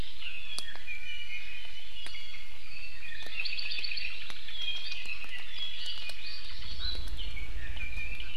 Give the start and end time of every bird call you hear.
0.2s-2.5s: Iiwi (Drepanis coccinea)
3.0s-4.2s: Apapane (Himatione sanguinea)
4.5s-7.1s: Apapane (Himatione sanguinea)
7.8s-8.3s: Iiwi (Drepanis coccinea)

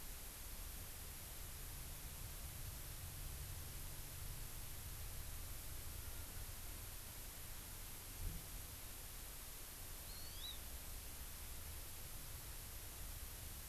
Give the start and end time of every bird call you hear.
10.0s-10.5s: Hawaii Amakihi (Chlorodrepanis virens)

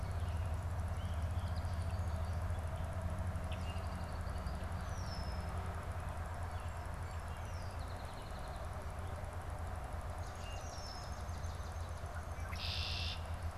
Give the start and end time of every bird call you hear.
1.3s-2.6s: Red-winged Blackbird (Agelaius phoeniceus)
3.3s-5.7s: Red-winged Blackbird (Agelaius phoeniceus)
6.2s-9.1s: Song Sparrow (Melospiza melodia)
7.4s-7.8s: Red-winged Blackbird (Agelaius phoeniceus)
10.0s-12.3s: Swamp Sparrow (Melospiza georgiana)
10.4s-11.4s: Red-winged Blackbird (Agelaius phoeniceus)
12.1s-13.5s: Red-winged Blackbird (Agelaius phoeniceus)

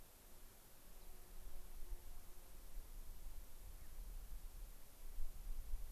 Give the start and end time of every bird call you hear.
0.9s-1.1s: Rock Wren (Salpinctes obsoletus)
3.7s-3.9s: Mountain Bluebird (Sialia currucoides)

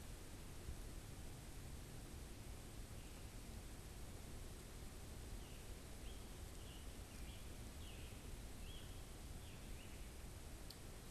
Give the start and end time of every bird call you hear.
5.3s-10.2s: Scarlet Tanager (Piranga olivacea)

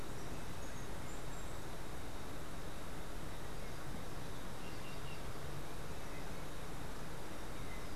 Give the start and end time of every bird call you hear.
4.5s-5.4s: Green Jay (Cyanocorax yncas)

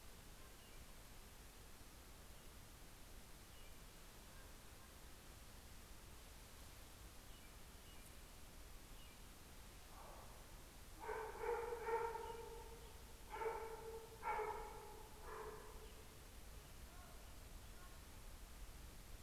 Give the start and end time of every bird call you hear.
0.0s-9.5s: American Robin (Turdus migratorius)
3.9s-5.4s: Common Raven (Corvus corax)

